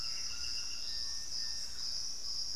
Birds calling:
Thrush-like Wren (Campylorhynchus turdinus), White-throated Toucan (Ramphastos tucanus), Little Tinamou (Crypturellus soui)

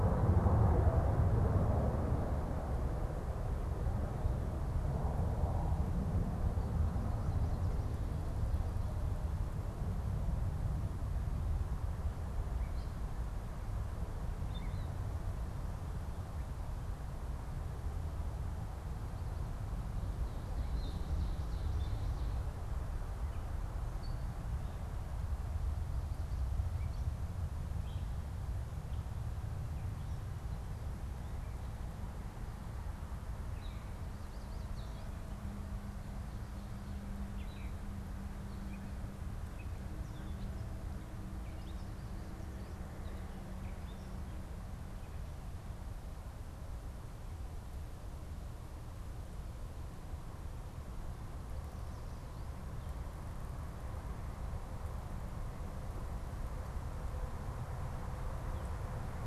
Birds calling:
Yellow Warbler (Setophaga petechia), Ovenbird (Seiurus aurocapilla), Gray Catbird (Dumetella carolinensis)

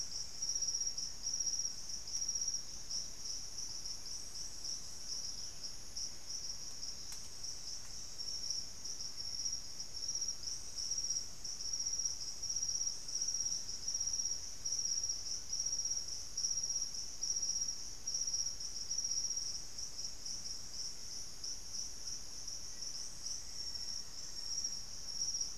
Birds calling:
White-throated Toucan (Ramphastos tucanus), Black-faced Antthrush (Formicarius analis), unidentified bird

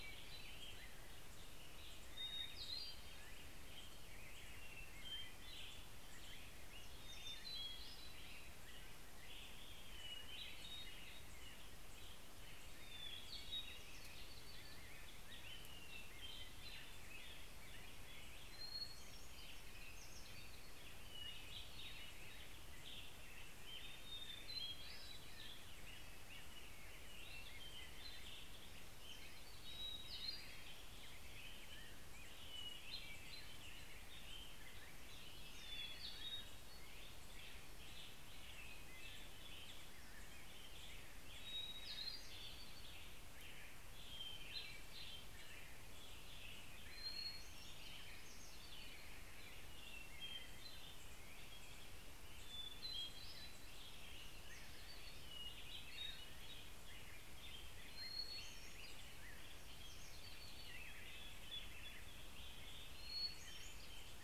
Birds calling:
Hermit Thrush (Catharus guttatus), Hermit Warbler (Setophaga occidentalis), American Robin (Turdus migratorius)

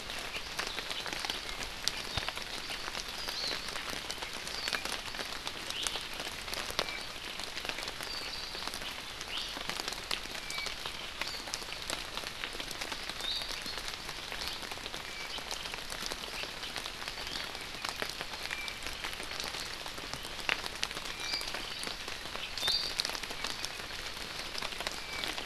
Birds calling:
Hawaii Amakihi (Chlorodrepanis virens), Apapane (Himatione sanguinea), Iiwi (Drepanis coccinea)

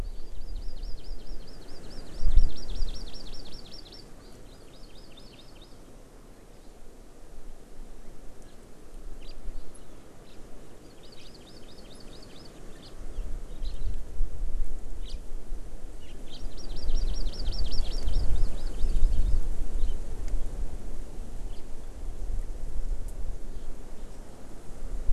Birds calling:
House Finch (Haemorhous mexicanus), Hawaii Amakihi (Chlorodrepanis virens)

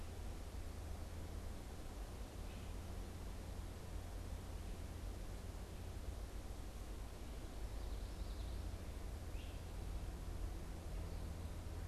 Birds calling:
Common Yellowthroat (Geothlypis trichas), Great Crested Flycatcher (Myiarchus crinitus)

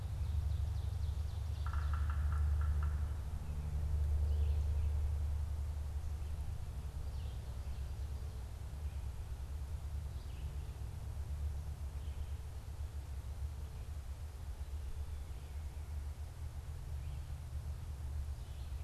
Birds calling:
Yellow-bellied Sapsucker (Sphyrapicus varius), Ovenbird (Seiurus aurocapilla), Red-eyed Vireo (Vireo olivaceus)

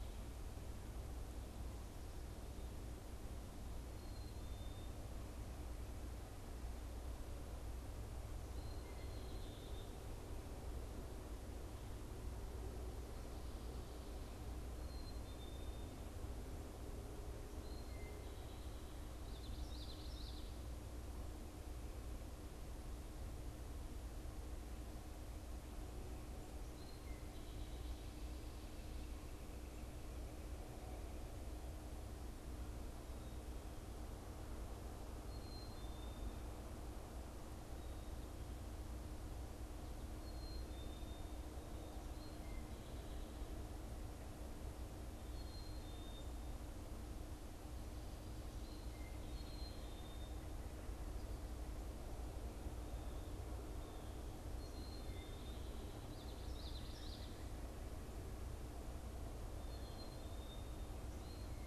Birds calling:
Black-capped Chickadee (Poecile atricapillus), Common Yellowthroat (Geothlypis trichas), unidentified bird

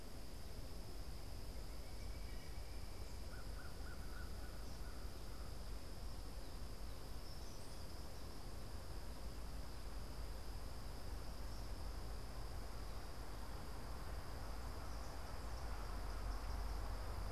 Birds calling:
Eastern Kingbird (Tyrannus tyrannus), Pileated Woodpecker (Dryocopus pileatus), American Crow (Corvus brachyrhynchos)

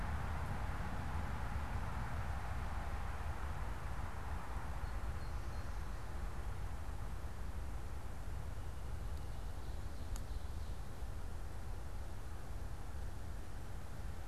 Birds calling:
unidentified bird

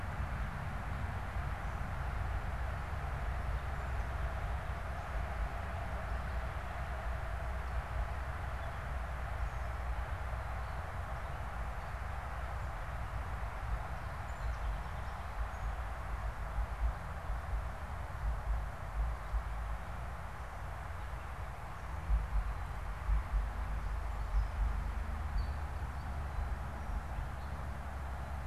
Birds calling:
unidentified bird, Song Sparrow (Melospiza melodia)

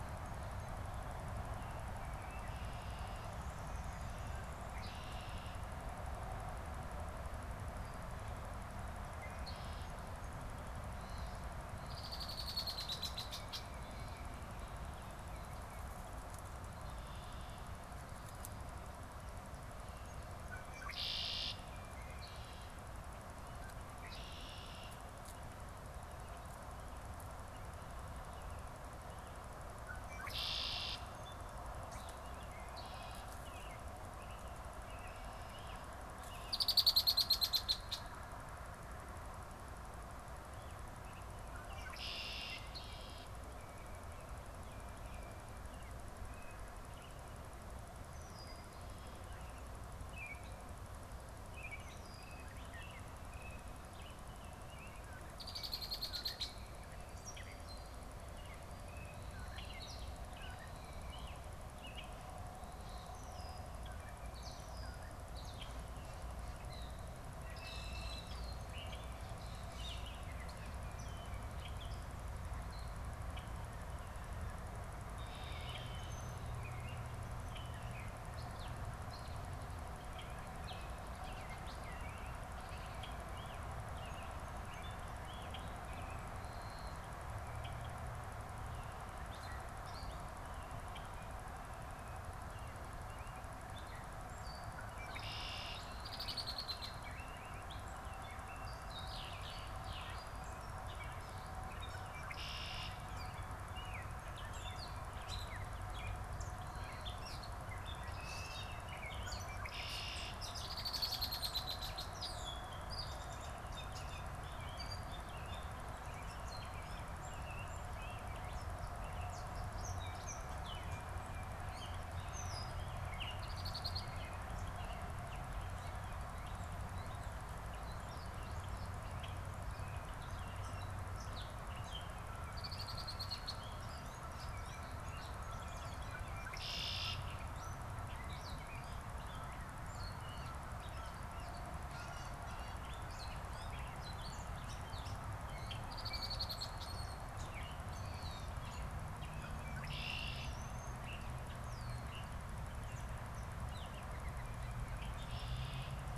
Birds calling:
American Robin (Turdus migratorius), unidentified bird, Red-winged Blackbird (Agelaius phoeniceus), Gray Catbird (Dumetella carolinensis)

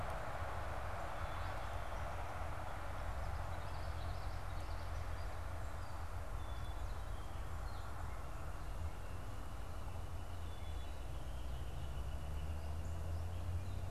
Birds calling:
unidentified bird, Northern Flicker (Colaptes auratus), Black-capped Chickadee (Poecile atricapillus), Common Yellowthroat (Geothlypis trichas)

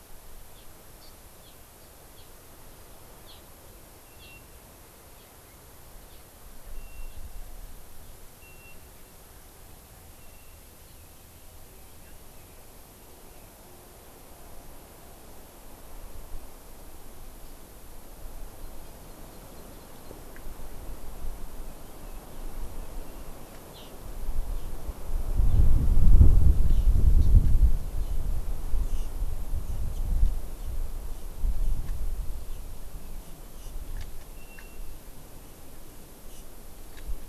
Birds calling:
Hawaii Amakihi (Chlorodrepanis virens)

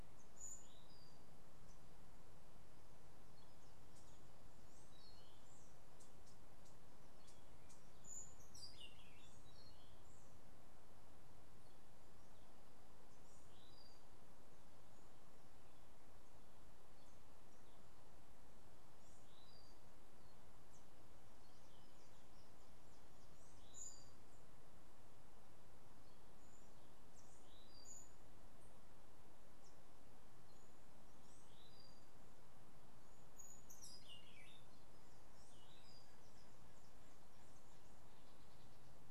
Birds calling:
Orange-billed Nightingale-Thrush (Catharus aurantiirostris), Cabanis's Wren (Cantorchilus modestus), White-eared Ground-Sparrow (Melozone leucotis)

